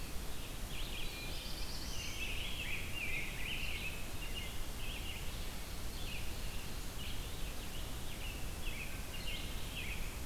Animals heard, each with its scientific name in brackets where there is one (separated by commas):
Ovenbird (Seiurus aurocapilla), Red-eyed Vireo (Vireo olivaceus), Black-throated Blue Warbler (Setophaga caerulescens), Rose-breasted Grosbeak (Pheucticus ludovicianus), American Robin (Turdus migratorius)